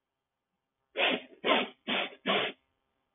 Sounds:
Sniff